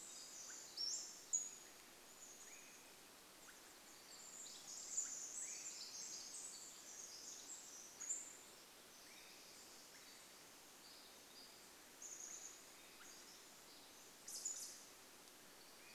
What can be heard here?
Pacific Wren song, Pacific-slope Flycatcher call, Swainson's Thrush call, unidentified sound